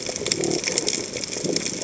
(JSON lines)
{"label": "biophony", "recorder": "HydroMoth"}